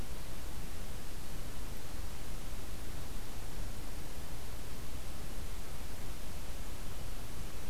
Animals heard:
forest ambience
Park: Marsh-Billings-Rockefeller National Historical Park